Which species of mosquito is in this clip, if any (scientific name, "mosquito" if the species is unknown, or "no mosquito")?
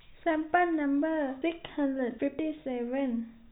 no mosquito